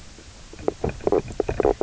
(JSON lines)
{"label": "biophony, knock croak", "recorder": "SoundTrap 300"}